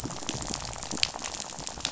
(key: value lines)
label: biophony, rattle
recorder: SoundTrap 500